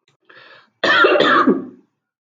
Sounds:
Cough